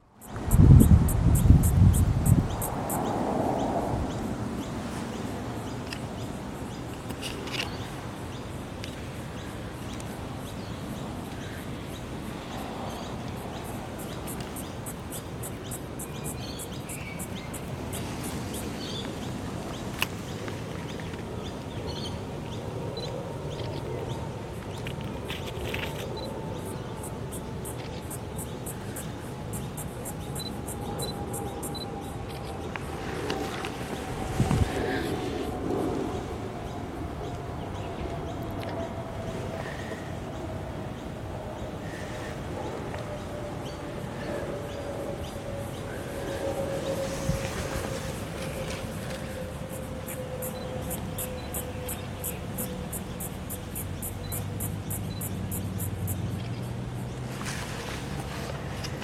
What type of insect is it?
cicada